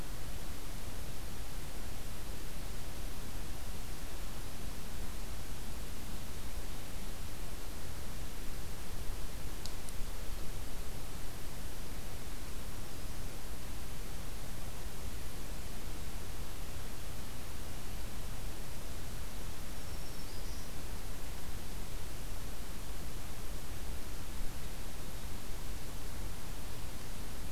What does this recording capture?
Black-throated Green Warbler